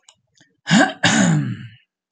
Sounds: Throat clearing